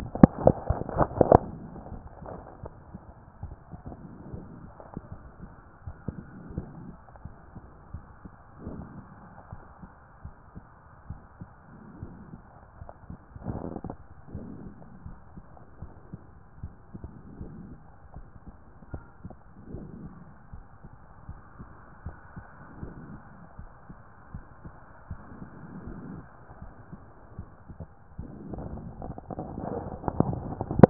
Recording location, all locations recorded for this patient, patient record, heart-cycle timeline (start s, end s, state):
pulmonary valve (PV)
aortic valve (AV)+pulmonary valve (PV)+tricuspid valve (TV)+mitral valve (MV)
#Age: nan
#Sex: Female
#Height: nan
#Weight: nan
#Pregnancy status: True
#Murmur: Absent
#Murmur locations: nan
#Most audible location: nan
#Systolic murmur timing: nan
#Systolic murmur shape: nan
#Systolic murmur grading: nan
#Systolic murmur pitch: nan
#Systolic murmur quality: nan
#Diastolic murmur timing: nan
#Diastolic murmur shape: nan
#Diastolic murmur grading: nan
#Diastolic murmur pitch: nan
#Diastolic murmur quality: nan
#Outcome: Abnormal
#Campaign: 2014 screening campaign
0.00	9.23	unannotated
9.23	9.52	diastole
9.52	9.62	S1
9.62	9.82	systole
9.82	9.90	S2
9.90	10.24	diastole
10.24	10.34	S1
10.34	10.54	systole
10.54	10.62	S2
10.62	11.08	diastole
11.08	11.20	S1
11.20	11.40	systole
11.40	11.48	S2
11.48	12.00	diastole
12.00	12.12	S1
12.12	12.30	systole
12.30	12.40	S2
12.40	12.81	diastole
12.81	12.90	S1
12.90	13.04	systole
13.04	13.16	S2
13.16	13.58	diastole
13.58	30.90	unannotated